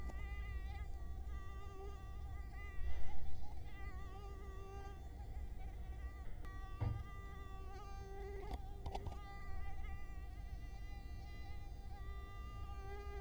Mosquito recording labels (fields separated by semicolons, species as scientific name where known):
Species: Culex quinquefasciatus; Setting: cup